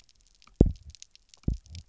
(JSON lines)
{"label": "biophony, double pulse", "recorder": "SoundTrap 300"}